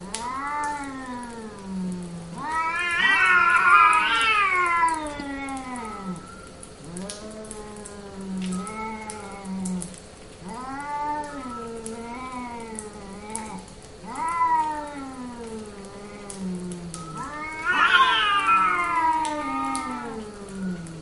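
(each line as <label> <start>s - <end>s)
A distant whistling fades out. 0.0s - 1.4s
A cat purrs continuously, fading out. 0.0s - 2.5s
Continuous crackling sound in the distance. 0.0s - 21.0s
A muffled whistling sound fades out in the distance. 2.3s - 4.1s
Cats purr loudly indoors with overlapping purrs that gradually fade out. 2.5s - 6.3s
A muffled whistling fades out. 5.6s - 6.6s
A cat purrs steadily. 6.6s - 10.2s
A muffled whistling sound fades into the distance. 8.4s - 9.4s
A cat purrs repeatedly in an oscillating manner indoors. 10.4s - 13.8s
A muffled whistling fades out. 11.5s - 12.2s
A distant whistling fades out. 14.0s - 15.3s
A cat growls continuously and then the sound fades out. 14.1s - 17.2s
A repeated rhythmic whistling sound in the distance. 17.1s - 21.0s
Cats purr loudly indoors with overlapping meows that gradually fade. 17.2s - 21.0s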